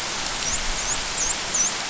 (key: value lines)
label: biophony, dolphin
recorder: SoundTrap 500